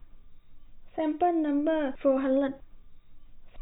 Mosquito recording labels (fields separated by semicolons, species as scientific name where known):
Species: no mosquito; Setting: cup